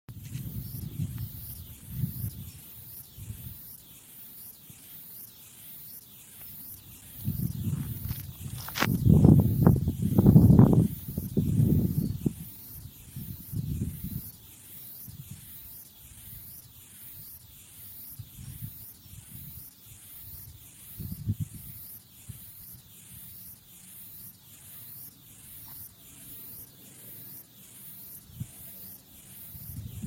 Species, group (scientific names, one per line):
Stenobothrus lineatus
Orthoptera